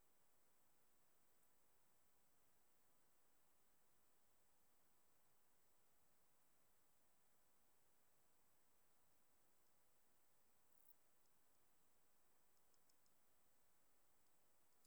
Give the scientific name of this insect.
Dociostaurus jagoi